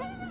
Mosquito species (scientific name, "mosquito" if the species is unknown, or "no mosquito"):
Aedes aegypti